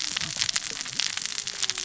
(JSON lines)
{"label": "biophony, cascading saw", "recorder": "SoundTrap 600 or HydroMoth"}